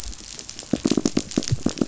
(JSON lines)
{"label": "biophony, knock", "recorder": "SoundTrap 500"}